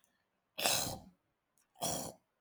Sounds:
Throat clearing